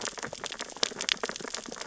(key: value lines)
label: biophony, sea urchins (Echinidae)
recorder: SoundTrap 600 or HydroMoth